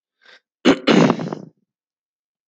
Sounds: Throat clearing